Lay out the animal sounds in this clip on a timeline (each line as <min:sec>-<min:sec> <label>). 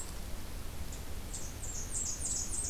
0:01.2-0:02.7 Blackburnian Warbler (Setophaga fusca)